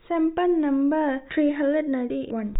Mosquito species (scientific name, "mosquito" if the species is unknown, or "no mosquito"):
no mosquito